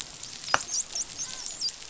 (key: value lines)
label: biophony, dolphin
recorder: SoundTrap 500